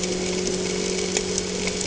{"label": "anthrophony, boat engine", "recorder": "HydroMoth"}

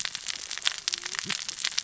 {"label": "biophony, cascading saw", "recorder": "SoundTrap 600 or HydroMoth"}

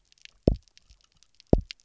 {"label": "biophony, double pulse", "recorder": "SoundTrap 300"}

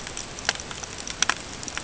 {"label": "ambient", "recorder": "HydroMoth"}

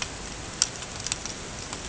{"label": "ambient", "recorder": "HydroMoth"}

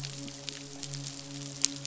{"label": "biophony, midshipman", "recorder": "SoundTrap 500"}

